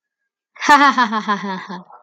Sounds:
Laughter